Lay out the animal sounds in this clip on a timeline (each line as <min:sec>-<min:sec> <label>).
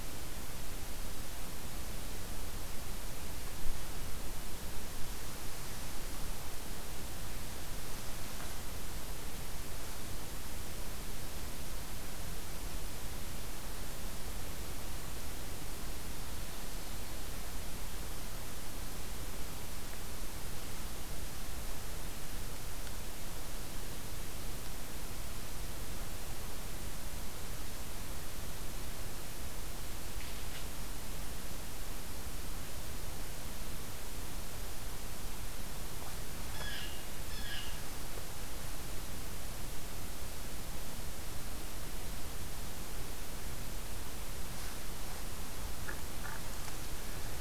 0:36.3-0:37.9 Yellow-bellied Sapsucker (Sphyrapicus varius)